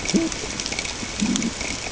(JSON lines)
{"label": "ambient", "recorder": "HydroMoth"}